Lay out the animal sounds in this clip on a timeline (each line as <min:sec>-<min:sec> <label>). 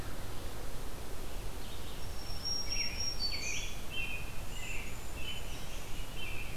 0:00.0-0:06.6 Red-eyed Vireo (Vireo olivaceus)
0:01.8-0:03.7 Black-throated Green Warbler (Setophaga virens)
0:02.6-0:06.6 American Robin (Turdus migratorius)